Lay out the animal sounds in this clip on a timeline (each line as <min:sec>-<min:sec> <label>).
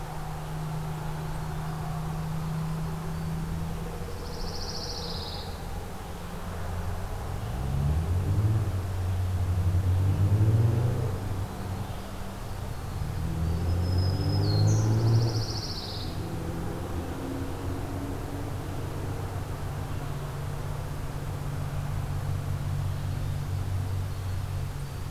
0:04.0-0:05.8 Pine Warbler (Setophaga pinus)
0:13.3-0:15.0 Black-throated Green Warbler (Setophaga virens)
0:14.8-0:16.3 Pine Warbler (Setophaga pinus)